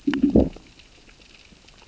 {"label": "biophony, growl", "recorder": "SoundTrap 600 or HydroMoth"}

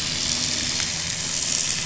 {"label": "anthrophony, boat engine", "recorder": "SoundTrap 500"}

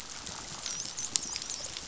{"label": "biophony, dolphin", "recorder": "SoundTrap 500"}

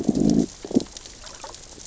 {"label": "biophony, growl", "recorder": "SoundTrap 600 or HydroMoth"}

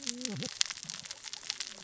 {"label": "biophony, cascading saw", "recorder": "SoundTrap 600 or HydroMoth"}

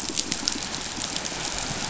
{"label": "biophony", "recorder": "SoundTrap 500"}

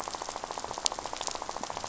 {"label": "biophony, rattle", "recorder": "SoundTrap 500"}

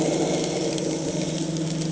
{"label": "anthrophony, boat engine", "recorder": "HydroMoth"}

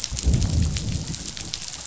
{"label": "biophony, growl", "recorder": "SoundTrap 500"}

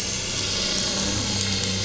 {"label": "anthrophony, boat engine", "recorder": "SoundTrap 500"}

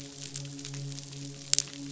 {"label": "biophony, midshipman", "recorder": "SoundTrap 500"}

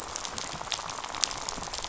{"label": "biophony, rattle", "recorder": "SoundTrap 500"}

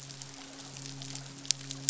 {"label": "biophony, midshipman", "recorder": "SoundTrap 500"}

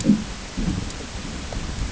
{"label": "ambient", "recorder": "HydroMoth"}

